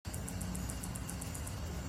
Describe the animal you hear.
Microcentrum rhombifolium, an orthopteran